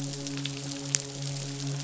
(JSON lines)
{"label": "biophony, midshipman", "recorder": "SoundTrap 500"}